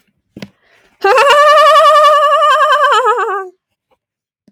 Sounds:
Laughter